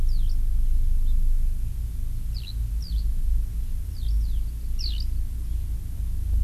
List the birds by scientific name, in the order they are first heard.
Alauda arvensis